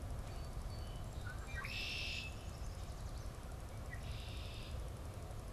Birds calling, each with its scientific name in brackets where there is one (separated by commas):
Song Sparrow (Melospiza melodia), Red-winged Blackbird (Agelaius phoeniceus), Yellow Warbler (Setophaga petechia)